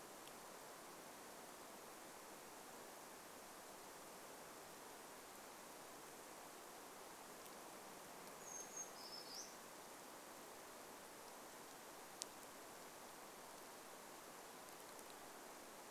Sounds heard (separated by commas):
Brown Creeper song